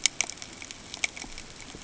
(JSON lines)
{"label": "ambient", "recorder": "HydroMoth"}